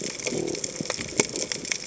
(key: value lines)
label: biophony
recorder: HydroMoth